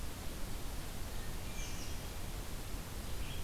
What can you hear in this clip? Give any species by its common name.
Hermit Thrush, American Robin, Red-eyed Vireo